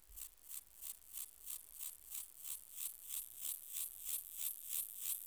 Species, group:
Gomphocerus sibiricus, Orthoptera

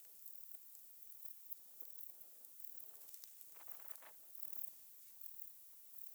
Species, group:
Baetica ustulata, Orthoptera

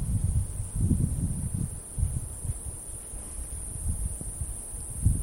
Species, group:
Glaucopsaltria viridis, Cicadidae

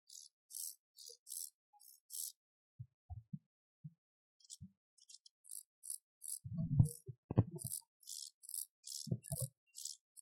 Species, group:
Chorthippus brunneus, Orthoptera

